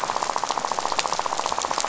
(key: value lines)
label: biophony, rattle
recorder: SoundTrap 500